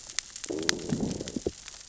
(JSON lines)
{"label": "biophony, growl", "recorder": "SoundTrap 600 or HydroMoth"}